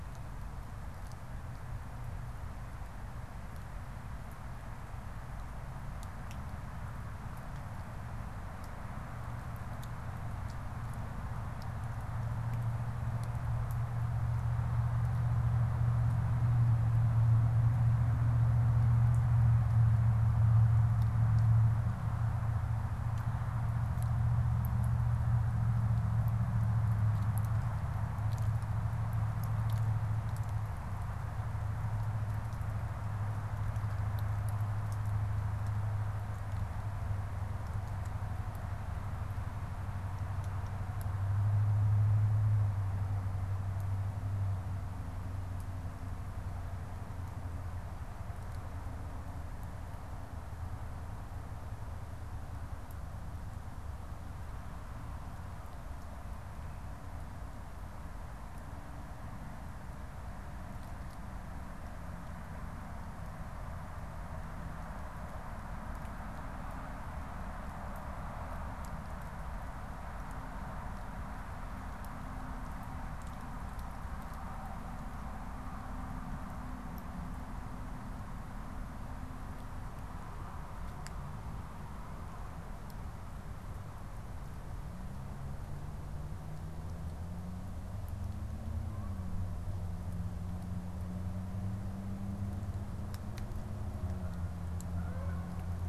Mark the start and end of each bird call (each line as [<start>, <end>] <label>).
[88.46, 95.88] Canada Goose (Branta canadensis)